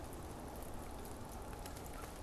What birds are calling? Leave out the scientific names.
American Crow